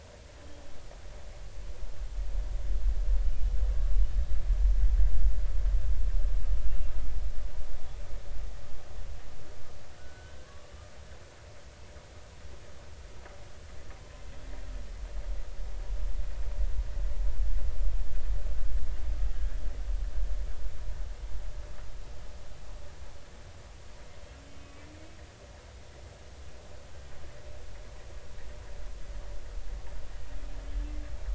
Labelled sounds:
10.0	10.7	humpback whale, 1.0 to 1.6 kHz
14.0	14.2	humpback whale, 0.99 to 1.1 kHz
24.4	24.9	humpback whale, 2.5 to 3.1 kHz

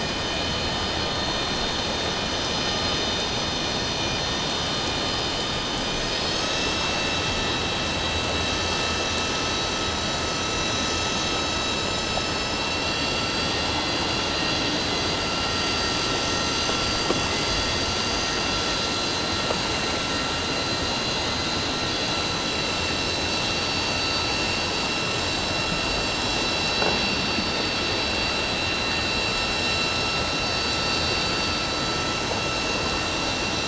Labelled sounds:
5.8	7.2	vessel noise, 1.2 to 6.6 kHz
12.6	14.0	vessel noise, 2.7 to 7.5 kHz
22.1	22.9	vessel noise, 3.9 to 7.4 kHz
23.6	23.8	vessel noise, 4.5 to 4.6 kHz

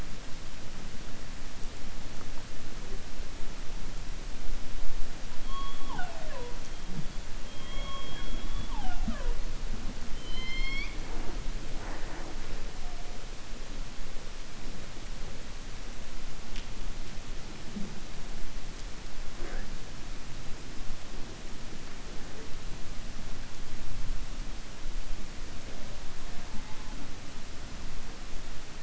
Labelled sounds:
10.1	11.4	killer whale, 0.33 to 5.5 kHz

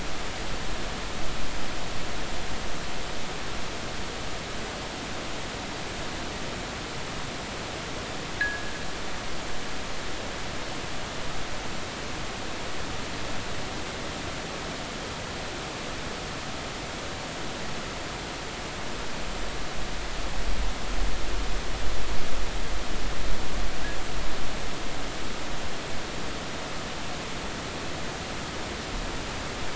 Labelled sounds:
8.4	8.7	fishing gear, 1.5 to 2.0 kHz

